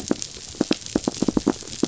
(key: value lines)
label: biophony, knock
recorder: SoundTrap 500